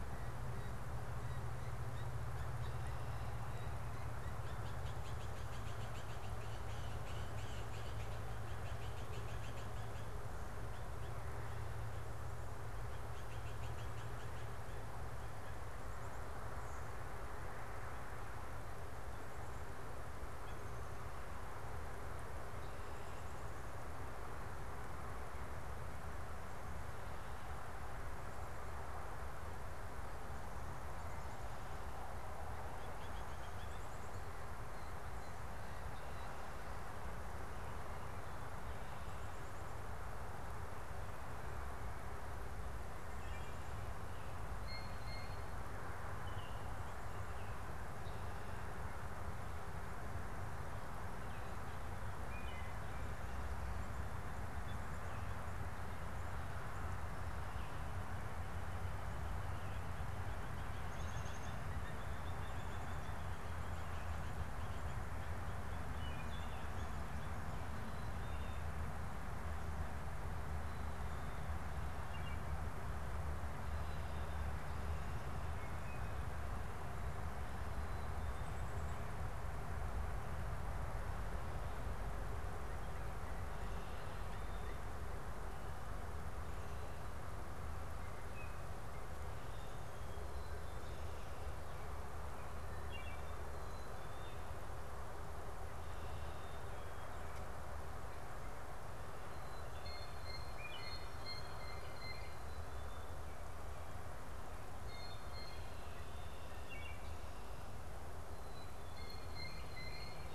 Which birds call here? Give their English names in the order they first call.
Blue Jay, Wood Thrush